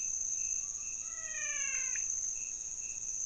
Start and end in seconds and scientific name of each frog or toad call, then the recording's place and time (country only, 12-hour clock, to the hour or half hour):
0.9	2.4	Physalaemus albonotatus
1.7	2.2	Leptodactylus podicipinus
Brazil, 4am